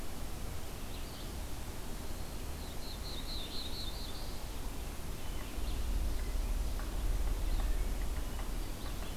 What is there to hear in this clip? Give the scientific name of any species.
Vireo olivaceus, Contopus virens, Setophaga caerulescens, Catharus guttatus